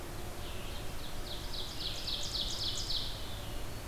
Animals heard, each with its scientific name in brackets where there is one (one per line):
Red-eyed Vireo (Vireo olivaceus)
Ovenbird (Seiurus aurocapilla)